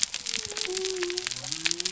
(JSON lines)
{"label": "biophony", "recorder": "SoundTrap 300"}